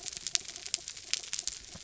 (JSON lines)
{"label": "anthrophony, mechanical", "recorder": "SoundTrap 300"}